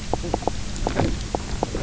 {"label": "biophony, knock croak", "recorder": "SoundTrap 300"}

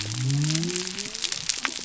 {"label": "biophony", "recorder": "SoundTrap 300"}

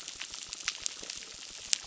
{"label": "biophony, crackle", "recorder": "SoundTrap 600"}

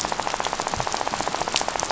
{"label": "biophony, rattle", "recorder": "SoundTrap 500"}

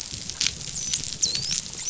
{"label": "biophony, dolphin", "recorder": "SoundTrap 500"}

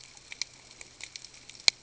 {"label": "ambient", "recorder": "HydroMoth"}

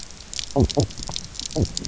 {"label": "biophony, knock croak", "recorder": "SoundTrap 300"}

